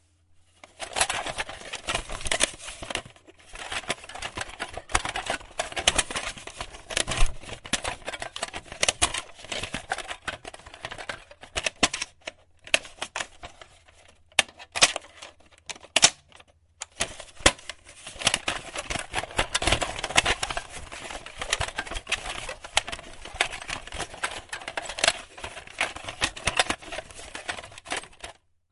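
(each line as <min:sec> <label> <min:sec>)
0:00.6 Plastic handling noises with VHS tape sounds and analog film hiss. 0:28.5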